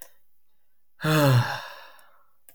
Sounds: Sigh